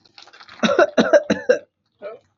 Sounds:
Cough